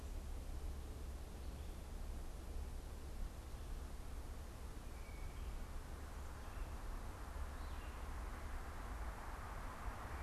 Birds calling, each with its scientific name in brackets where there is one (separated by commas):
Blue Jay (Cyanocitta cristata)